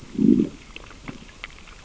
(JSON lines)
{"label": "biophony, growl", "recorder": "SoundTrap 600 or HydroMoth"}